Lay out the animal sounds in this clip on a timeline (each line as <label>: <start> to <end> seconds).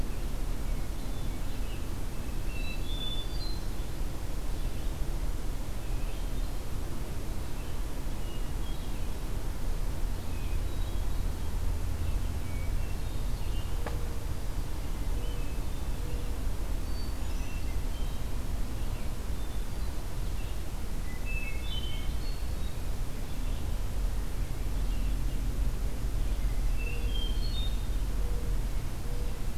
Red-eyed Vireo (Vireo olivaceus): 0.0 to 1.7 seconds
Hermit Thrush (Catharus guttatus): 0.6 to 1.9 seconds
Hermit Thrush (Catharus guttatus): 2.3 to 3.8 seconds
Hermit Thrush (Catharus guttatus): 5.6 to 6.9 seconds
Hermit Thrush (Catharus guttatus): 7.2 to 9.2 seconds
Hermit Thrush (Catharus guttatus): 10.1 to 11.6 seconds
Hermit Thrush (Catharus guttatus): 12.3 to 13.8 seconds
Hermit Thrush (Catharus guttatus): 15.0 to 16.3 seconds
Hermit Thrush (Catharus guttatus): 16.7 to 18.3 seconds
Hermit Thrush (Catharus guttatus): 19.1 to 20.0 seconds
Hermit Thrush (Catharus guttatus): 20.9 to 22.8 seconds
Hermit Thrush (Catharus guttatus): 26.4 to 28.0 seconds
Mourning Dove (Zenaida macroura): 27.4 to 29.6 seconds